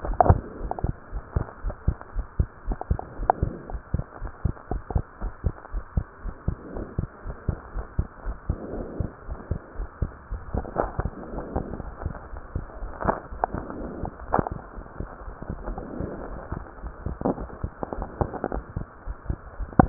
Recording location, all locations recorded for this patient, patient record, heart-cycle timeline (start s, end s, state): pulmonary valve (PV)
aortic valve (AV)+pulmonary valve (PV)+tricuspid valve (TV)+mitral valve (MV)
#Age: Child
#Sex: Male
#Height: 125.0 cm
#Weight: 28.3 kg
#Pregnancy status: False
#Murmur: Absent
#Murmur locations: nan
#Most audible location: nan
#Systolic murmur timing: nan
#Systolic murmur shape: nan
#Systolic murmur grading: nan
#Systolic murmur pitch: nan
#Systolic murmur quality: nan
#Diastolic murmur timing: nan
#Diastolic murmur shape: nan
#Diastolic murmur grading: nan
#Diastolic murmur pitch: nan
#Diastolic murmur quality: nan
#Outcome: Normal
#Campaign: 2015 screening campaign
0.00	0.96	unannotated
0.96	1.14	diastole
1.14	1.24	S1
1.24	1.32	systole
1.32	1.46	S2
1.46	1.64	diastole
1.64	1.76	S1
1.76	1.82	systole
1.82	1.96	S2
1.96	2.16	diastole
2.16	2.26	S1
2.26	2.38	systole
2.38	2.52	S2
2.52	2.68	diastole
2.68	2.78	S1
2.78	2.86	systole
2.86	3.00	S2
3.00	3.18	diastole
3.18	3.30	S1
3.30	3.40	systole
3.40	3.54	S2
3.54	3.72	diastole
3.72	3.82	S1
3.82	3.90	systole
3.90	4.04	S2
4.04	4.22	diastole
4.22	4.30	S1
4.30	4.40	systole
4.40	4.54	S2
4.54	4.72	diastole
4.72	4.82	S1
4.82	4.90	systole
4.90	5.04	S2
5.04	5.22	diastole
5.22	5.34	S1
5.34	5.46	systole
5.46	5.56	S2
5.56	5.74	diastole
5.74	5.84	S1
5.84	5.92	systole
5.92	6.06	S2
6.06	6.24	diastole
6.24	6.34	S1
6.34	6.44	systole
6.44	6.56	S2
6.56	6.74	diastole
6.74	6.88	S1
6.88	6.96	systole
6.96	7.08	S2
7.08	7.26	diastole
7.26	7.36	S1
7.36	7.44	systole
7.44	7.58	S2
7.58	7.74	diastole
7.74	7.86	S1
7.86	7.94	systole
7.94	8.08	S2
8.08	8.26	diastole
8.26	8.38	S1
8.38	8.48	systole
8.48	8.58	S2
8.58	8.72	diastole
8.72	8.86	S1
8.86	8.98	systole
8.98	9.10	S2
9.10	9.28	diastole
9.28	9.38	S1
9.38	9.50	systole
9.50	9.60	S2
9.60	9.78	diastole
9.78	9.88	S1
9.88	9.98	systole
9.98	10.12	S2
10.12	10.30	diastole
10.30	10.44	S1
10.44	10.52	systole
10.52	10.64	S2
10.64	10.78	diastole
10.78	19.89	unannotated